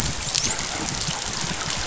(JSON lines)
{"label": "biophony, dolphin", "recorder": "SoundTrap 500"}